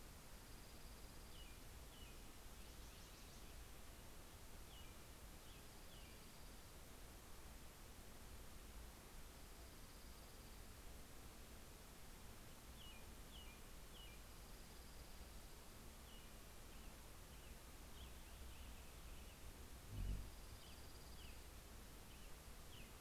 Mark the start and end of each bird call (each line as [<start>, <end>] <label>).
[0.00, 4.20] Dark-eyed Junco (Junco hyemalis)
[1.20, 6.20] American Robin (Turdus migratorius)
[5.20, 6.90] Dark-eyed Junco (Junco hyemalis)
[9.00, 10.80] Dark-eyed Junco (Junco hyemalis)
[13.10, 22.90] American Robin (Turdus migratorius)
[13.90, 15.90] Dark-eyed Junco (Junco hyemalis)
[19.50, 21.60] Dark-eyed Junco (Junco hyemalis)